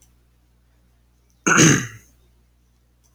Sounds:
Throat clearing